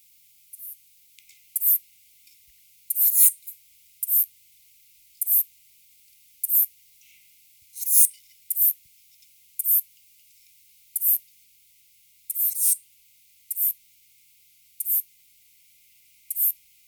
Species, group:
Ephippiger diurnus
Orthoptera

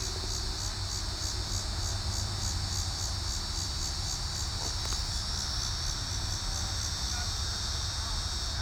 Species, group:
Megatibicen pronotalis
Cicadidae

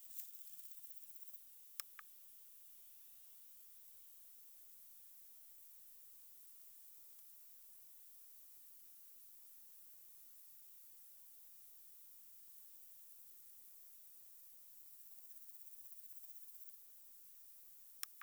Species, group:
Omocestus bolivari
Orthoptera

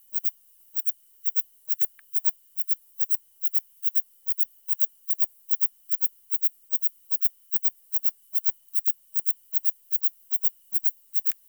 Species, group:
Platycleis intermedia
Orthoptera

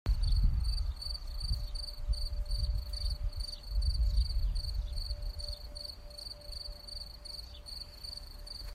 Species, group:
Gryllus campestris
Orthoptera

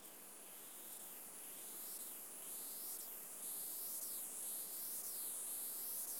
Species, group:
Stenobothrus lineatus
Orthoptera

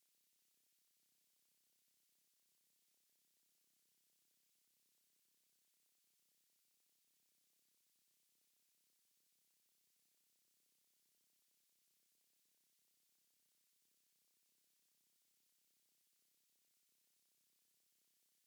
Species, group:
Antaxius chopardi
Orthoptera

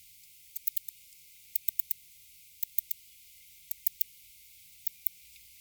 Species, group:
Barbitistes serricauda
Orthoptera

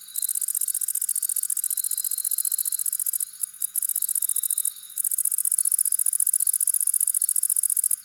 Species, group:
Tettigonia viridissima
Orthoptera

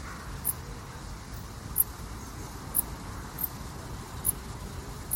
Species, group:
Pholidoptera griseoaptera
Orthoptera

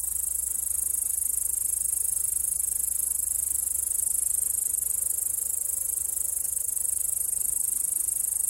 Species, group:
Tettigonia cantans
Orthoptera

